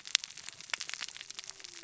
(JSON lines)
{"label": "biophony, cascading saw", "recorder": "SoundTrap 600 or HydroMoth"}